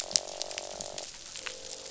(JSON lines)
{"label": "biophony, croak", "recorder": "SoundTrap 500"}